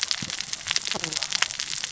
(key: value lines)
label: biophony, cascading saw
recorder: SoundTrap 600 or HydroMoth